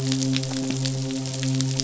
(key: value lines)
label: biophony, midshipman
recorder: SoundTrap 500